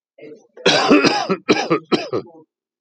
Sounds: Cough